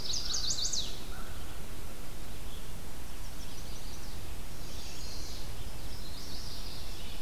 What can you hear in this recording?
Chestnut-sided Warbler, American Crow, Red-eyed Vireo, Yellow-rumped Warbler